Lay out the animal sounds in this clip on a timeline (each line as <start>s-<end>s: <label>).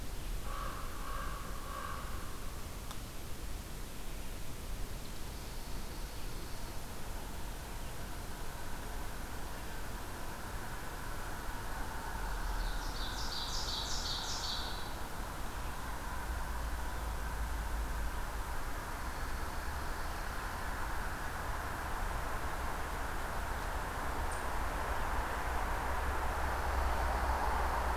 0.1s-2.5s: American Crow (Corvus brachyrhynchos)
12.2s-15.0s: Ovenbird (Seiurus aurocapilla)
18.8s-20.6s: Dark-eyed Junco (Junco hyemalis)